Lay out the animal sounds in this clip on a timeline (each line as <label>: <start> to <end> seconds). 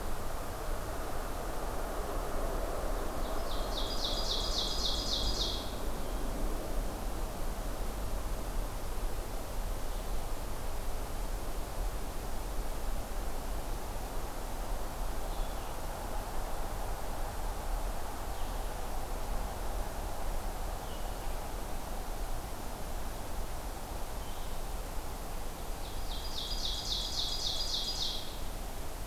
Blue-headed Vireo (Vireo solitarius): 0.0 to 29.1 seconds
Ovenbird (Seiurus aurocapilla): 3.2 to 5.8 seconds
Ovenbird (Seiurus aurocapilla): 25.7 to 28.3 seconds